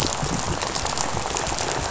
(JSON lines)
{"label": "biophony, rattle", "recorder": "SoundTrap 500"}